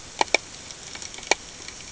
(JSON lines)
{"label": "ambient", "recorder": "HydroMoth"}